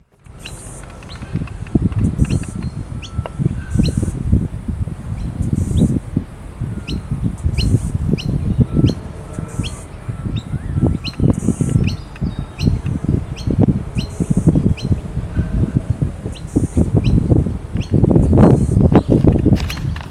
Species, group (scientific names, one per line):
Yoyetta cumberlandi
Cicadidae